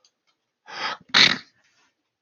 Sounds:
Sneeze